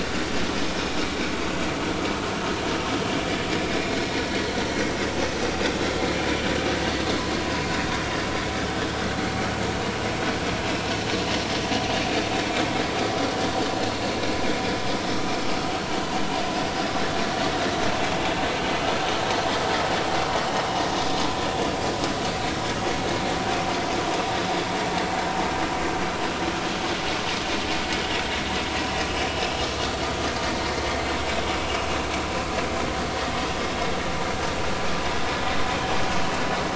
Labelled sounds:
29.9	30.1	vessel noise, 4.4 to 4.5 kHz

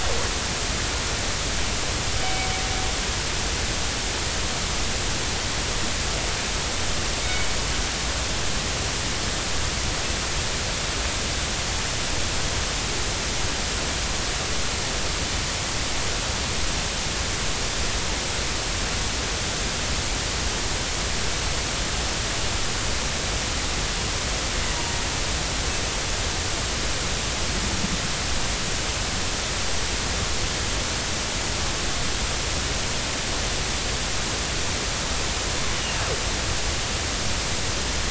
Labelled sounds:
2.2	2.5	killer whale, northern resident, G clan, 2.2 to 2.3 kHz
7.2	7.5	killer whale, northern resident, G clan, 2.2 to 2.3 kHz
24.7	25.0	killer whale, northern resident, G clan, 0.90 to 0.99 kHz
35.7	36.0	killer whale, northern resident, G clan, 2.7 to 3.0 kHz

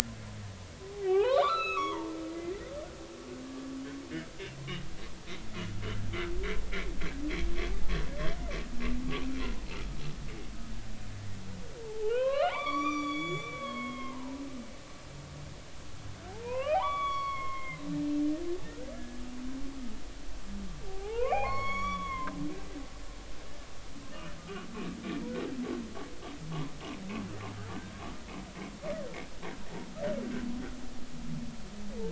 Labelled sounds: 0.9	2.1	humpback whale, 0.80 to 4.2 kHz
8.7	9.0	humpback whale, 2.3 to 2.8 kHz
11.8	14.4	humpback whale, 0.80 to 7.1 kHz
16.3	17.8	humpback whale, 0.80 to 4.6 kHz
18.9	19.2	humpback whale, 1.6 to 1.8 kHz
20.9	22.4	humpback whale, 0.80 to 6.9 kHz
24.4	24.7	humpback whale, 1.1 to 1.3 kHz

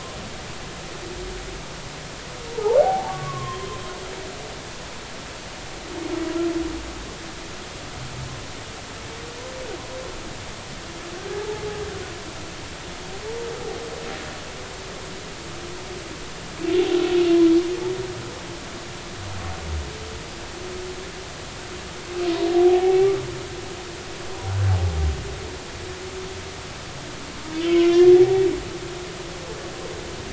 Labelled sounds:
2.5	3.8	humpback whale, 0.80 to 1.2 kHz
11.3	11.6	humpback whale, 0.80 to 0.93 kHz
22.5	23.1	humpback whale, 0.80 to 2.4 kHz
27.6	28.4	humpback whale, 0.80 to 5.7 kHz

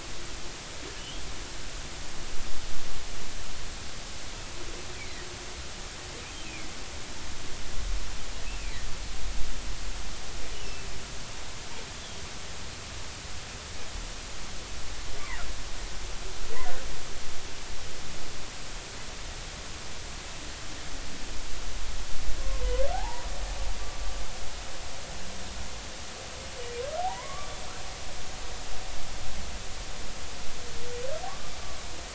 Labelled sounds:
8.6	8.9	humpback whale, 1.8 to 2.4 kHz
10.6	10.9	humpback whale, 2.6 to 2.7 kHz
22.9	23.3	humpback whale, 0.80 to 1.0 kHz
27.0	27.6	humpback whale, 0.80 to 2.2 kHz
31.3	31.5	humpback whale, 1.0 to 1.2 kHz

